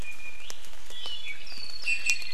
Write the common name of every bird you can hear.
Iiwi, Hawaii Creeper